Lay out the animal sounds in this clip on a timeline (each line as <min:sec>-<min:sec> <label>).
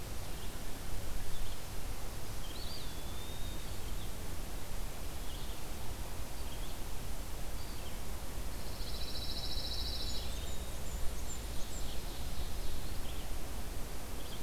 0:00.0-0:14.4 Red-eyed Vireo (Vireo olivaceus)
0:02.3-0:03.7 Eastern Wood-Pewee (Contopus virens)
0:08.5-0:10.3 Pine Warbler (Setophaga pinus)
0:09.8-0:11.9 Blackburnian Warbler (Setophaga fusca)
0:09.8-0:10.9 Eastern Wood-Pewee (Contopus virens)
0:11.1-0:13.0 Ovenbird (Seiurus aurocapilla)